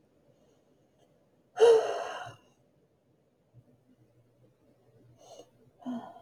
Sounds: Sigh